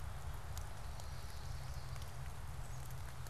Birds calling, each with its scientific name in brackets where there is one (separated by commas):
Chestnut-sided Warbler (Setophaga pensylvanica)